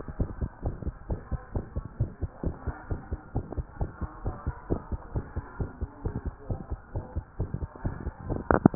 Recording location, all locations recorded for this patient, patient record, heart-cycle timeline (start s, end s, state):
tricuspid valve (TV)
aortic valve (AV)+pulmonary valve (PV)+tricuspid valve (TV)+mitral valve (MV)
#Age: Child
#Sex: Female
#Height: 125.0 cm
#Weight: 31.9 kg
#Pregnancy status: False
#Murmur: Present
#Murmur locations: aortic valve (AV)+mitral valve (MV)+pulmonary valve (PV)+tricuspid valve (TV)
#Most audible location: pulmonary valve (PV)
#Systolic murmur timing: Mid-systolic
#Systolic murmur shape: Diamond
#Systolic murmur grading: II/VI
#Systolic murmur pitch: Medium
#Systolic murmur quality: Harsh
#Diastolic murmur timing: nan
#Diastolic murmur shape: nan
#Diastolic murmur grading: nan
#Diastolic murmur pitch: nan
#Diastolic murmur quality: nan
#Outcome: Abnormal
#Campaign: 2015 screening campaign
0.00	0.19	diastole
0.19	0.28	S1
0.28	0.40	systole
0.40	0.50	S2
0.50	0.64	diastole
0.64	0.73	S1
0.73	0.85	systole
0.85	0.94	S2
0.94	1.10	diastole
1.10	1.20	S1
1.20	1.30	systole
1.30	1.40	S2
1.40	1.54	diastole
1.54	1.61	S1
1.61	1.76	systole
1.76	1.84	S2
1.84	2.00	diastole
2.00	2.10	S1
2.10	2.22	systole
2.22	2.30	S2
2.30	2.44	diastole
2.44	2.56	S1
2.56	2.66	systole
2.66	2.74	S2
2.74	2.90	diastole
2.90	3.00	S1
3.00	3.12	systole
3.12	3.20	S2
3.20	3.34	diastole
3.34	3.46	S1
3.46	3.58	systole
3.58	3.66	S2
3.66	3.80	diastole
3.80	3.90	S1
3.90	4.02	systole
4.02	4.10	S2
4.10	4.24	diastole
4.24	4.36	S1
4.36	4.46	systole
4.46	4.56	S2
4.56	4.70	diastole
4.70	4.82	S1
4.82	4.91	systole
4.91	5.00	S2
5.00	5.14	diastole
5.14	5.23	S1
5.23	5.35	systole
5.35	5.42	S2
5.42	5.60	diastole
5.60	5.69	S1
5.69	5.80	systole
5.80	5.89	S2
5.89	6.04	diastole
6.04	6.16	S1
6.16	6.25	systole
6.25	6.34	S2
6.34	6.50	diastole
6.50	6.60	S1
6.60	6.72	systole
6.72	6.80	S2
6.80	6.96	diastole
6.96	7.06	S1
7.06	7.16	systole
7.16	7.24	S2
7.24	7.38	diastole
7.38	7.50	S1
7.50	7.61	systole
7.61	7.68	S2
7.68	7.86	diastole
7.86	7.94	S1
7.94	8.06	systole
8.06	8.14	S2
8.14	8.28	diastole